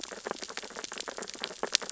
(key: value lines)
label: biophony, sea urchins (Echinidae)
recorder: SoundTrap 600 or HydroMoth